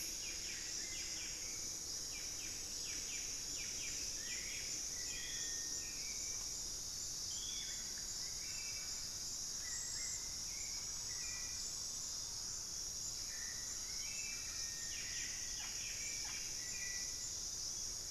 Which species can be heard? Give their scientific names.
Cantorchilus leucotis, Turdus hauxwelli, Campylorhynchus turdinus, Formicarius analis, Psarocolius angustifrons